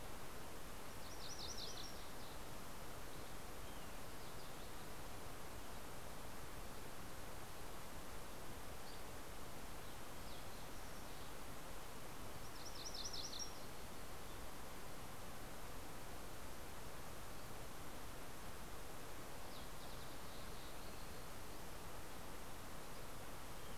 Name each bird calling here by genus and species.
Geothlypis tolmiei, Passerella iliaca, Empidonax oberholseri, Pipilo chlorurus